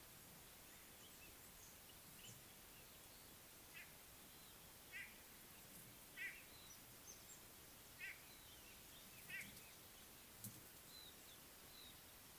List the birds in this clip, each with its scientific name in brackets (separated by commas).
Speckled Mousebird (Colius striatus), White-bellied Go-away-bird (Corythaixoides leucogaster), Pale White-eye (Zosterops flavilateralis)